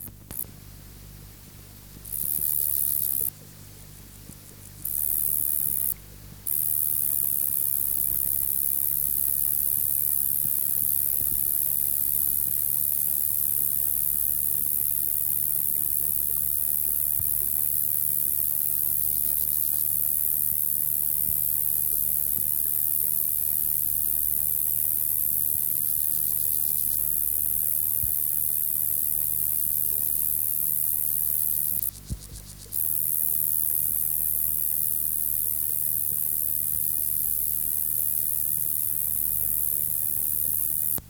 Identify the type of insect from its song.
orthopteran